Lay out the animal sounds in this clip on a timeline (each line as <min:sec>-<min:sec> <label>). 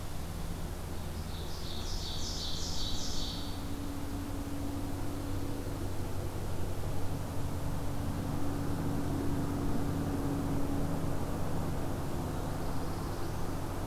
0:00.9-0:03.9 Ovenbird (Seiurus aurocapilla)
0:12.1-0:13.6 Black-throated Blue Warbler (Setophaga caerulescens)